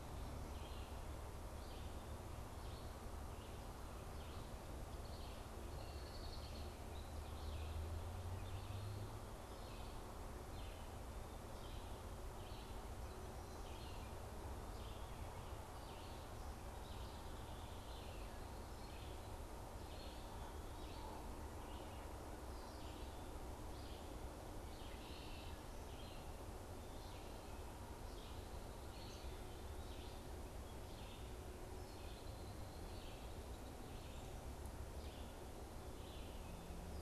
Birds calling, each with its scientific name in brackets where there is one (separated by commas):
Red-eyed Vireo (Vireo olivaceus), Red-winged Blackbird (Agelaius phoeniceus)